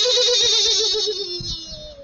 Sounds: Sigh